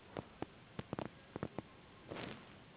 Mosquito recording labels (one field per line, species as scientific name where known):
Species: Anopheles gambiae s.s.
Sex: female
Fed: unfed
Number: one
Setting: insect culture